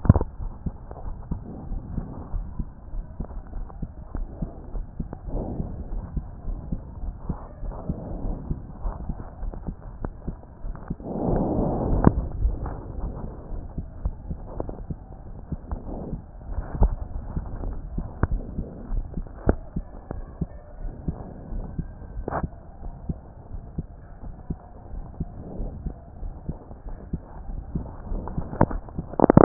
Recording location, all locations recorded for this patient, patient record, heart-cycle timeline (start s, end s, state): aortic valve (AV)
aortic valve (AV)+pulmonary valve (PV)+tricuspid valve (TV)+mitral valve (MV)
#Age: Child
#Sex: Male
#Height: 133.0 cm
#Weight: 27.6 kg
#Pregnancy status: False
#Murmur: Absent
#Murmur locations: nan
#Most audible location: nan
#Systolic murmur timing: nan
#Systolic murmur shape: nan
#Systolic murmur grading: nan
#Systolic murmur pitch: nan
#Systolic murmur quality: nan
#Diastolic murmur timing: nan
#Diastolic murmur shape: nan
#Diastolic murmur grading: nan
#Diastolic murmur pitch: nan
#Diastolic murmur quality: nan
#Outcome: Normal
#Campaign: 2014 screening campaign
0.00	1.04	unannotated
1.04	1.16	S1
1.16	1.30	systole
1.30	1.40	S2
1.40	1.70	diastole
1.70	1.82	S1
1.82	1.96	systole
1.96	2.06	S2
2.06	2.34	diastole
2.34	2.46	S1
2.46	2.58	systole
2.58	2.68	S2
2.68	2.94	diastole
2.94	3.04	S1
3.04	3.18	systole
3.18	3.28	S2
3.28	3.54	diastole
3.54	3.66	S1
3.66	3.80	systole
3.80	3.90	S2
3.90	4.16	diastole
4.16	4.28	S1
4.28	4.40	systole
4.40	4.50	S2
4.50	4.74	diastole
4.74	4.86	S1
4.86	4.98	systole
4.98	5.08	S2
5.08	5.28	diastole
5.28	29.44	unannotated